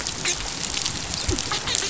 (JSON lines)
{"label": "biophony, dolphin", "recorder": "SoundTrap 500"}